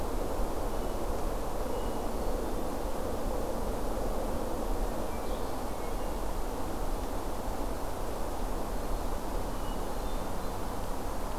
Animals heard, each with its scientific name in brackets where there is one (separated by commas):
Hermit Thrush (Catharus guttatus)